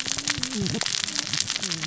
{"label": "biophony, cascading saw", "recorder": "SoundTrap 600 or HydroMoth"}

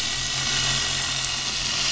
{"label": "anthrophony, boat engine", "recorder": "SoundTrap 500"}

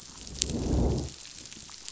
{"label": "biophony, growl", "recorder": "SoundTrap 500"}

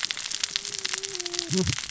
{"label": "biophony, cascading saw", "recorder": "SoundTrap 600 or HydroMoth"}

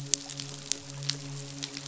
{"label": "biophony, midshipman", "recorder": "SoundTrap 500"}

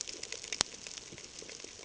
{"label": "ambient", "recorder": "HydroMoth"}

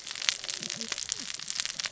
{"label": "biophony, cascading saw", "recorder": "SoundTrap 600 or HydroMoth"}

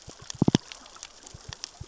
{"label": "biophony, knock", "recorder": "SoundTrap 600 or HydroMoth"}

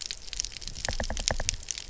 {"label": "biophony, knock", "recorder": "SoundTrap 300"}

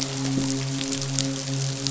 {"label": "biophony, midshipman", "recorder": "SoundTrap 500"}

